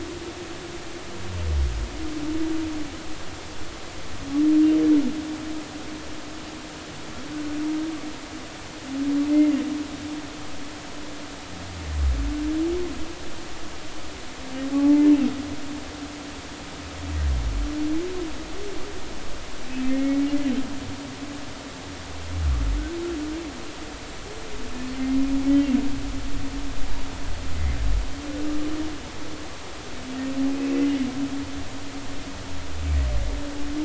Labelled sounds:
9.3	9.6	humpback whale, 1.8 to 2.2 kHz
14.7	15.1	humpback whale, 0.80 to 0.99 kHz
19.8	20.3	humpback whale, 1.8 to 2.3 kHz
30.5	30.8	humpback whale, 2.4 to 2.7 kHz

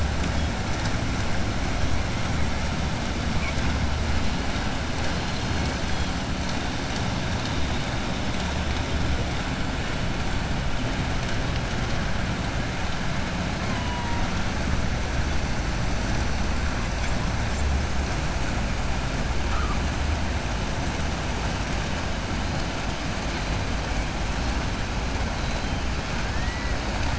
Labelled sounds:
26.3	26.7	killer whale, southern resident, 1.7 to 2.9 kHz

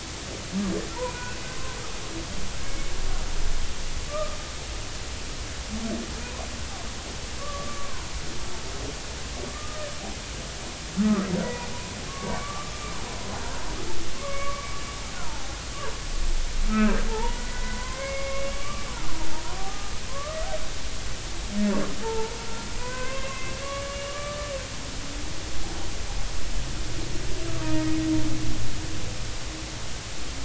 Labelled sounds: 0.9	1.3	humpback whale, 0.86 to 2.5 kHz
2.6	2.9	humpback whale, 2.1 to 2.3 kHz
4.1	4.4	humpback whale, 1.1 to 1.3 kHz
7.4	8.1	humpback whale, 0.93 to 1.2 kHz
9.5	9.9	humpback whale, 1.2 to 1.3 kHz
11.0	12.7	humpback whale, 0.90 to 2.3 kHz
14.2	14.7	humpback whale, 1.0 to 2.3 kHz
15.2	15.6	humpback whale, 0.80 to 1.1 kHz
16.7	18.9	humpback whale, 0.80 to 2.8 kHz
19.7	20.4	humpback whale, 0.99 to 1.3 kHz
22.0	22.4	humpback whale, 0.83 to 1.4 kHz
22.7	24.5	humpback whale, 0.93 to 2.9 kHz
27.6	28.0	humpback whale, 0.90 to 2.0 kHz

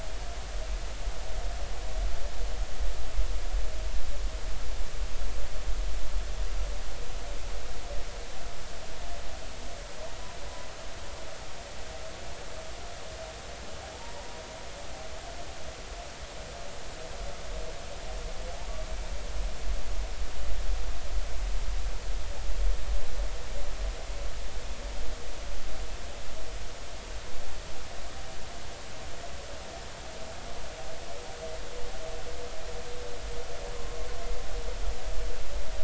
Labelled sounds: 13.9	14.3	humpback whale, 0.83 to 1.0 kHz

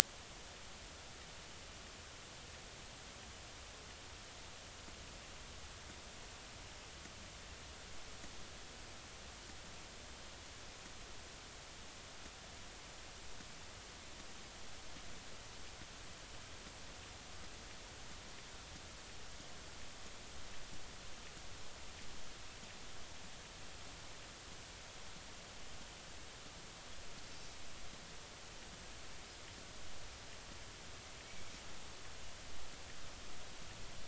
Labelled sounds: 27.2	27.5	Pacific white-sided dolphin, 4.4 to 4.8 kHz

